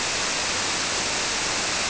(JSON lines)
{"label": "biophony", "recorder": "SoundTrap 300"}